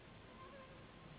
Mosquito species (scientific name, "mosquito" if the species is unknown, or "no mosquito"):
Anopheles gambiae s.s.